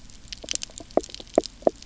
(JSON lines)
{"label": "biophony, knock croak", "recorder": "SoundTrap 300"}